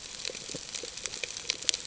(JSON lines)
{"label": "ambient", "recorder": "HydroMoth"}